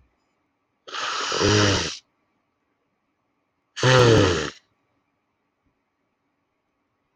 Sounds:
Sniff